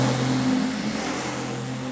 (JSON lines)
{"label": "anthrophony, boat engine", "recorder": "SoundTrap 500"}